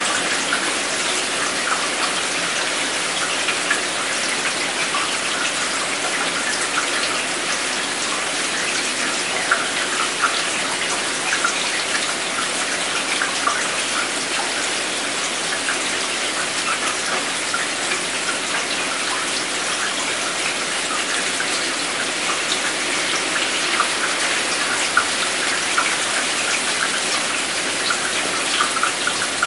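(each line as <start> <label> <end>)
0.0 Heavy rain showers with water dripping. 29.5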